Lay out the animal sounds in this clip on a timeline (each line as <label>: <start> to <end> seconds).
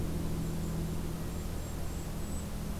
Golden-crowned Kinglet (Regulus satrapa): 0.2 to 2.6 seconds